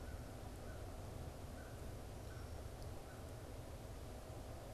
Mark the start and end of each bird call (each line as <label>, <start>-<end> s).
American Crow (Corvus brachyrhynchos), 0.0-3.8 s
Red-winged Blackbird (Agelaius phoeniceus), 2.5-4.7 s